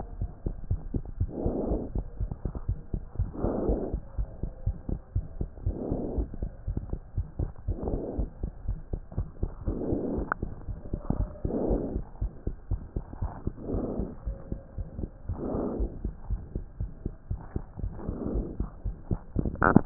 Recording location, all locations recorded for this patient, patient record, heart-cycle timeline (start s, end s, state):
pulmonary valve (PV)
aortic valve (AV)+pulmonary valve (PV)+tricuspid valve (TV)+mitral valve (MV)
#Age: Child
#Sex: Male
#Height: 93.0 cm
#Weight: 13.4 kg
#Pregnancy status: False
#Murmur: Present
#Murmur locations: aortic valve (AV)+mitral valve (MV)+pulmonary valve (PV)+tricuspid valve (TV)
#Most audible location: tricuspid valve (TV)
#Systolic murmur timing: Holosystolic
#Systolic murmur shape: Decrescendo
#Systolic murmur grading: II/VI
#Systolic murmur pitch: Low
#Systolic murmur quality: Harsh
#Diastolic murmur timing: nan
#Diastolic murmur shape: nan
#Diastolic murmur grading: nan
#Diastolic murmur pitch: nan
#Diastolic murmur quality: nan
#Outcome: Abnormal
#Campaign: 2015 screening campaign
0.00	0.06	S2
0.06	0.18	diastole
0.18	0.30	S1
0.30	0.42	systole
0.42	0.56	S2
0.56	0.69	diastole
0.69	0.80	S1
0.80	0.88	systole
0.88	1.02	S2
1.02	1.18	diastole
1.18	1.30	S1
1.30	1.42	systole
1.42	1.54	S2
1.54	1.68	diastole
1.68	1.82	S1
1.82	1.92	systole
1.92	2.04	S2
2.04	2.18	diastole
2.18	2.30	S1
2.30	2.42	systole
2.42	2.52	S2
2.52	2.66	diastole
2.66	2.78	S1
2.78	2.90	systole
2.90	3.04	S2
3.04	3.16	diastole
3.16	3.32	S1
3.32	3.40	systole
3.40	3.54	S2
3.54	3.66	diastole
3.66	3.80	S1
3.80	3.90	systole
3.90	4.00	S2
4.00	4.16	diastole
4.16	4.30	S1
4.30	4.40	systole
4.40	4.50	S2
4.50	4.64	diastole
4.64	4.76	S1
4.76	4.88	systole
4.88	5.00	S2
5.00	5.12	diastole
5.12	5.26	S1
5.26	5.38	systole
5.38	5.48	S2
5.48	5.62	diastole
5.62	5.76	S1
5.76	5.88	systole
5.88	6.00	S2
6.00	6.16	diastole
6.16	6.30	S1
6.30	6.40	systole
6.40	6.50	S2
6.50	6.65	diastole
6.65	6.76	S1
6.76	6.90	systole
6.90	7.00	S2
7.00	7.14	diastole
7.14	7.26	S1
7.26	7.40	systole
7.40	7.50	S2
7.50	7.66	diastole
7.66	7.78	S1
7.78	7.85	systole
7.85	7.93	S2
7.93	8.16	diastole
8.16	8.30	S1
8.30	8.41	systole
8.41	8.52	S2
8.52	8.65	diastole
8.65	8.80	S1
8.80	8.90	systole
8.90	9.00	S2
9.00	9.16	diastole
9.16	9.28	S1
9.28	9.40	systole
9.40	9.52	S2
9.52	9.65	diastole
9.65	9.78	S1
9.78	9.88	systole
9.88	10.00	S2
10.00	10.12	diastole
10.12	10.26	S1
10.26	10.40	systole
10.40	10.50	S2
10.50	10.66	diastole
10.66	10.78	S1
10.78	10.91	systole
10.91	11.00	S2
11.00	11.16	diastole
11.16	11.30	S1
11.30	11.42	systole
11.42	11.52	S2
11.52	11.68	diastole
11.68	11.84	S1
11.84	11.94	systole
11.94	12.04	S2
12.04	12.19	diastole
12.19	12.32	S1
12.32	12.45	systole
12.45	12.56	S2
12.56	12.69	diastole
12.69	12.80	S1
12.80	12.93	systole
12.93	13.04	S2
13.04	13.20	diastole
13.20	13.32	S1
13.32	13.45	systole
13.45	13.54	S2
13.54	13.68	diastole
13.68	13.84	S1
13.84	13.96	systole
13.96	14.08	S2
14.08	14.24	diastole
14.24	14.36	S1
14.36	14.49	systole
14.49	14.59	S2
14.59	14.76	diastole
14.76	14.88	S1
14.88	14.98	systole
14.98	15.12	S2
15.12	15.27	diastole
15.27	15.39	S1
15.39	15.52	systole
15.52	15.64	S2
15.64	15.76	diastole
15.76	15.92	S1
15.92	16.03	systole
16.03	16.14	S2
16.14	16.28	diastole
16.28	16.41	S1
16.41	16.53	systole
16.53	16.64	S2
16.64	16.78	diastole
16.78	16.90	S1
16.90	17.03	systole
17.03	17.14	S2
17.14	17.27	diastole
17.27	17.40	S1
17.40	17.53	systole
17.53	17.64	S2
17.64	17.75	diastole